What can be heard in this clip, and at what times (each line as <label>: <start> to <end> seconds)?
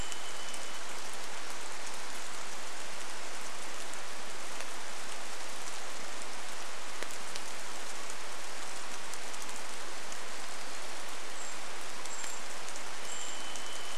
rain: 0 to 14 seconds
Hermit Warbler song: 10 to 12 seconds
Brown Creeper call: 10 to 14 seconds
Varied Thrush song: 12 to 14 seconds